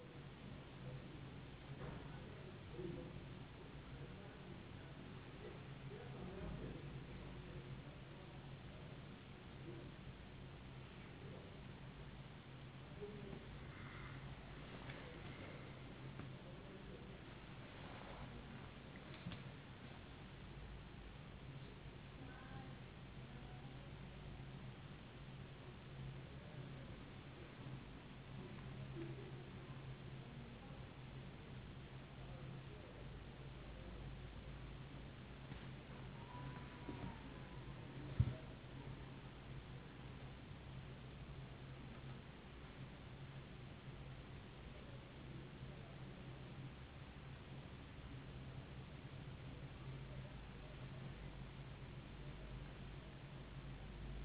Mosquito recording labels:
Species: no mosquito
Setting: insect culture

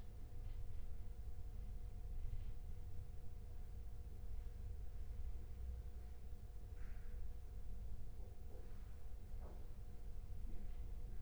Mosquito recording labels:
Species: no mosquito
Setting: cup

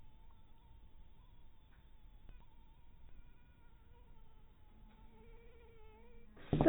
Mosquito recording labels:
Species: mosquito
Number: one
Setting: cup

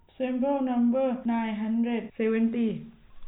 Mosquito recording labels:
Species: no mosquito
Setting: cup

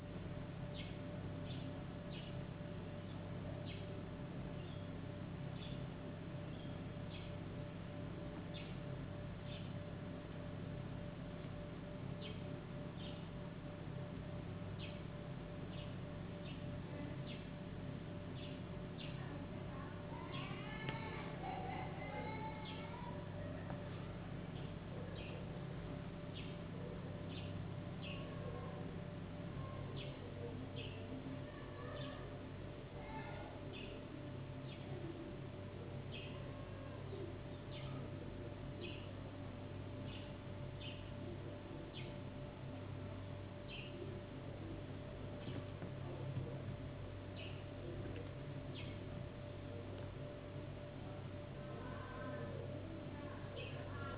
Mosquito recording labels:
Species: no mosquito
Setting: insect culture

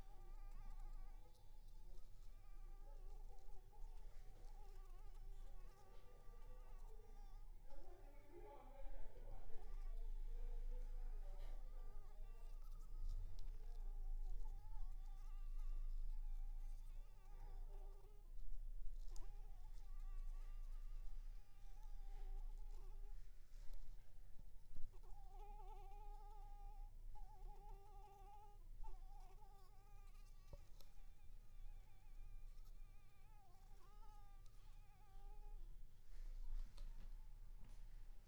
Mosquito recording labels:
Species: Anopheles arabiensis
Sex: female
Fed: unfed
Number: one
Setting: cup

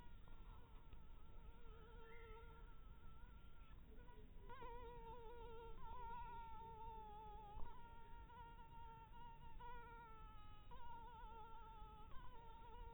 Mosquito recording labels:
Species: Anopheles harrisoni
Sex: female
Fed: blood-fed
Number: one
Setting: cup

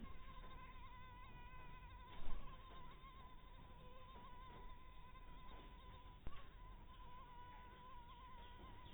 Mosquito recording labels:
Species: mosquito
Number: one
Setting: cup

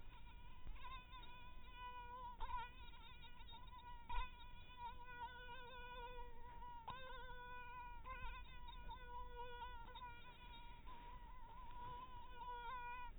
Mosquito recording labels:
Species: mosquito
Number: one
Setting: cup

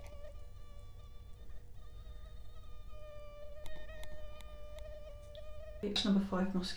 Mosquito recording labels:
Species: Culex quinquefasciatus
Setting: cup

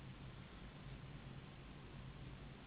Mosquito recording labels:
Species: Anopheles gambiae s.s.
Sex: female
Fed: unfed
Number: one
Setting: insect culture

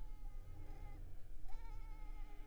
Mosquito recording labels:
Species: Culex pipiens complex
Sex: female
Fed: unfed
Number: one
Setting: cup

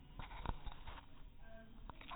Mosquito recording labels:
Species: mosquito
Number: one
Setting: cup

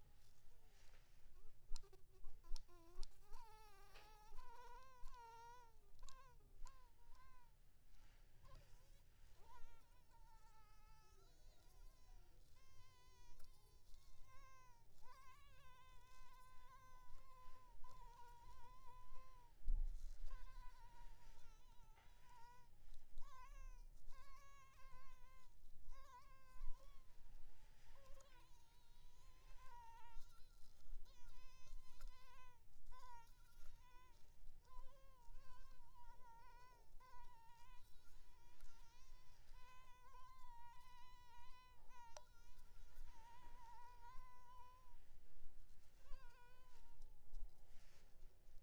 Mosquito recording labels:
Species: Anopheles maculipalpis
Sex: female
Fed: blood-fed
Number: one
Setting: cup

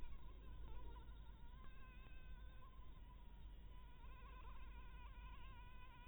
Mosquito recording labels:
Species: Anopheles harrisoni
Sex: female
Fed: blood-fed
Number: one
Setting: cup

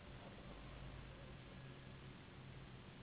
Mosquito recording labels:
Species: Anopheles gambiae s.s.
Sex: female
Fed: unfed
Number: one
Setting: insect culture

